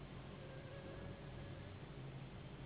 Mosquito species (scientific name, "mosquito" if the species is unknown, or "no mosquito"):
Anopheles gambiae s.s.